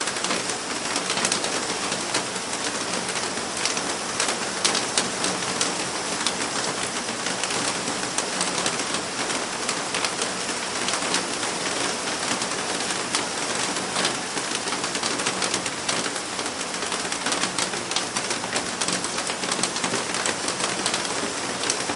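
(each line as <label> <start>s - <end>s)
Rain falling loudly on a metal roof. 0.0s - 22.0s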